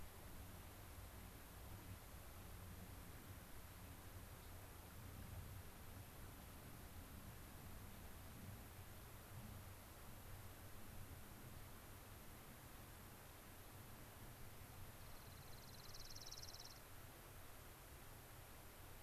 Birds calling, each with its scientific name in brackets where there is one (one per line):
Dark-eyed Junco (Junco hyemalis)
Gray-crowned Rosy-Finch (Leucosticte tephrocotis)